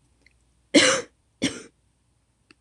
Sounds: Cough